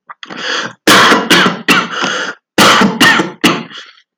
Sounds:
Cough